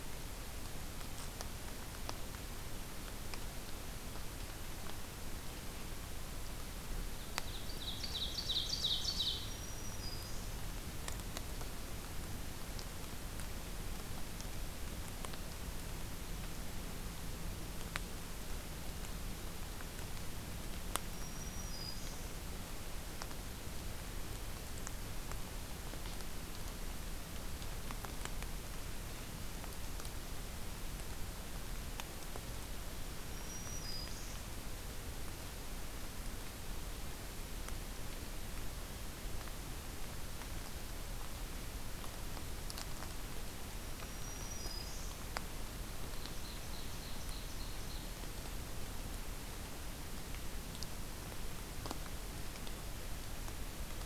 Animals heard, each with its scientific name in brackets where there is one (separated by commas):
Black-throated Green Warbler (Setophaga virens), Ovenbird (Seiurus aurocapilla)